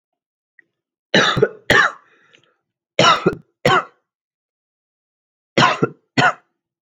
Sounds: Cough